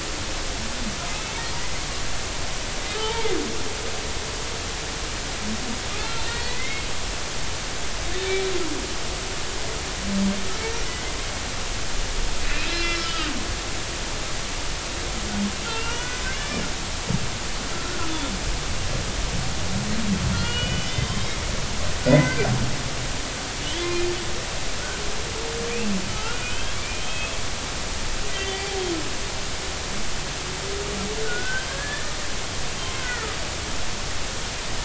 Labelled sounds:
3.0	3.3	humpback whale, 0.80 to 0.99 kHz
6.0	6.8	humpback whale, 1.8 to 4.4 kHz
12.5	13.3	humpback whale, 1.2 to 5.5 kHz
14.0	14.3	humpback whale, 2.8 to 3.1 kHz
15.7	16.6	humpback whale, 1.3 to 6.0 kHz
17.7	18.2	humpback whale, 1.2 to 1.5 kHz
20.3	21.3	humpback whale, 1.3 to 4.4 kHz
22.1	22.4	humpback whale, 1.9 to 2.2 kHz
23.8	24.1	humpback whale, 2.4 to 2.5 kHz
26.1	27.4	humpback whale, 1.2 to 3.4 kHz
28.3	28.6	humpback whale, 3.0 to 3.2 kHz
31.2	32.1	humpback whale, 1.4 to 3.3 kHz
33.0	33.4	humpback whale, 1.2 to 1.6 kHz

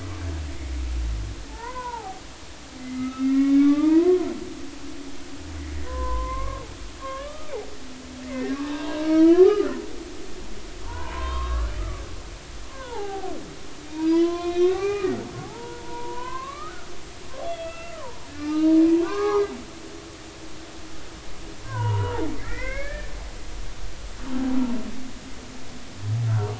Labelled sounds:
1.5	4.3	humpback whale, 0.80 to 2.7 kHz
5.8	6.7	humpback whale, 0.93 to 2.3 kHz
7.0	7.5	humpback whale, 1.0 to 1.8 kHz
8.2	9.7	humpback whale, 0.83 to 2.9 kHz
10.8	11.7	humpback whale, 0.83 to 4.3 kHz
12.7	15.1	humpback whale, 0.80 to 4.3 kHz
15.4	19.5	humpback whale, 0.80 to 3.5 kHz
21.6	23.1	humpback whale, 0.80 to 3.0 kHz

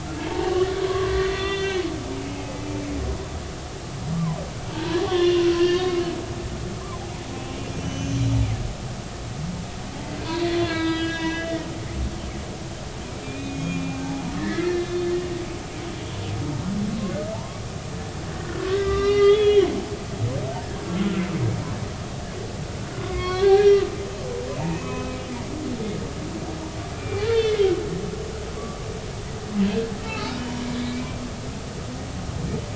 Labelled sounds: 0.8	1.9	humpback whale, 0.80 to 3.6 kHz
4.1	6.0	humpback whale, 0.80 to 3.6 kHz
7.8	8.2	humpback whale, 2.9 to 6.3 kHz
10.5	11.5	humpback whale, 0.93 to 5.0 kHz
13.2	15.1	humpback whale, 1.6 to 3.6 kHz
17.3	17.6	humpback whale, 0.83 to 1.2 kHz
18.7	19.7	humpback whale, 1.1 to 5.8 kHz
20.8	21.2	humpback whale, 1.3 to 1.5 kHz
23.0	23.8	humpback whale, 1.0 to 5.7 kHz
24.7	25.2	humpback whale, 0.96 to 2.7 kHz
26.9	27.6	humpback whale, 2.3 to 4.6 kHz
28.5	28.9	humpback whale, 1.1 to 1.2 kHz
30.1	30.3	humpback whale, 1.2 to 1.4 kHz

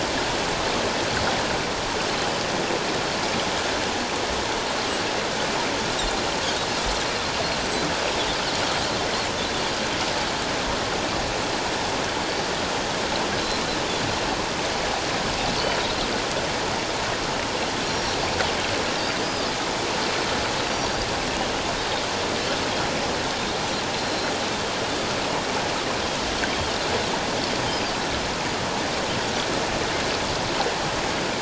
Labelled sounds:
17.8	18.1	Pacific white-sided dolphin, 5.5 to 5.7 kHz
20.7	21.0	Pacific white-sided dolphin, 4.5 to 5.8 kHz
23.9	24.3	Pacific white-sided dolphin, 4.1 to 4.2 kHz

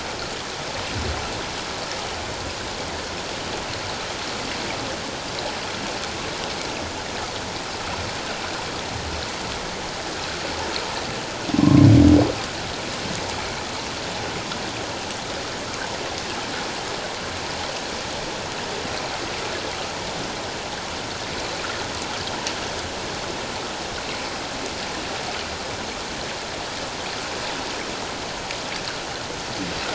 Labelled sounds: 11.6	11.8	humpback whale, 0.97 to 1.2 kHz

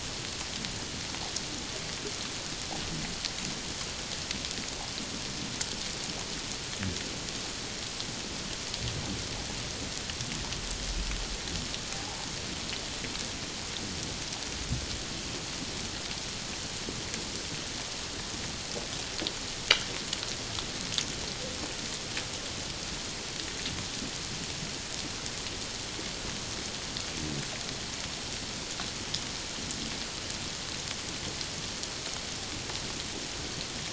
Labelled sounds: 11.9	12.3	humpback whale, 0.78 to 0.97 kHz

